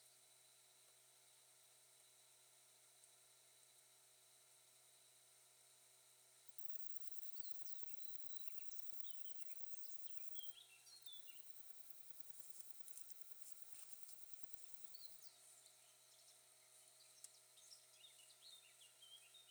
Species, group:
Poecilimon affinis, Orthoptera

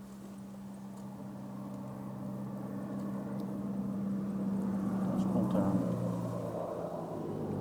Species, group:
Omocestus petraeus, Orthoptera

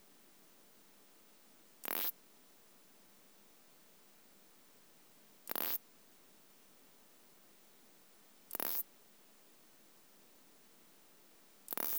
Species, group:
Isophya clara, Orthoptera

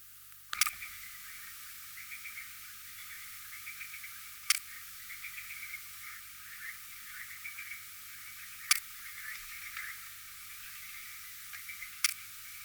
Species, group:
Poecilimon jonicus, Orthoptera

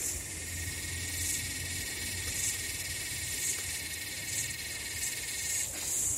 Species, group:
Psaltoda harrisii, Cicadidae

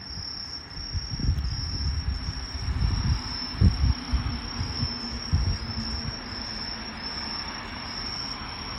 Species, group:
Truljalia hibinonis, Orthoptera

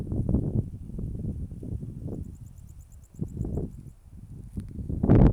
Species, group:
Pholidoptera aptera, Orthoptera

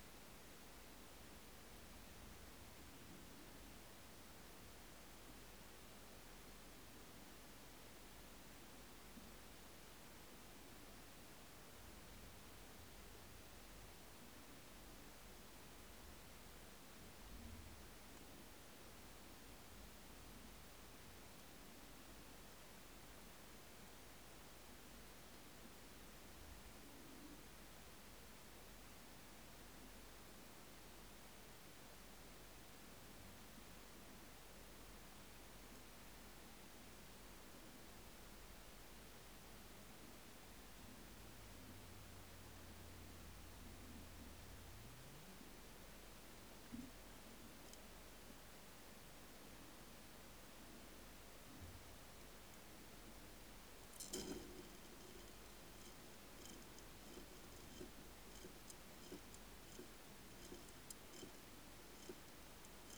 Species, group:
Myrmeleotettix maculatus, Orthoptera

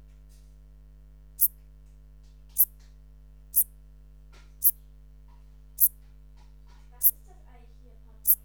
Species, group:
Eupholidoptera uvarovi, Orthoptera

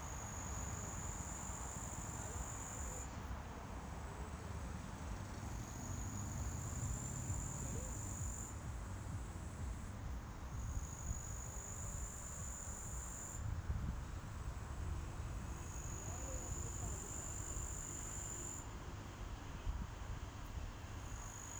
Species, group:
Tettigonia cantans, Orthoptera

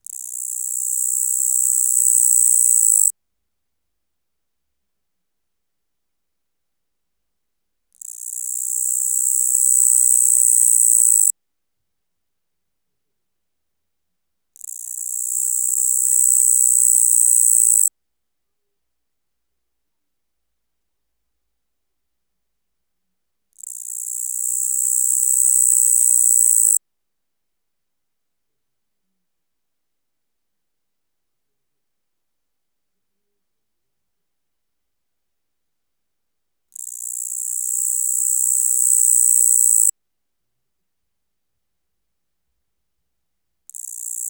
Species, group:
Tettigonia caudata, Orthoptera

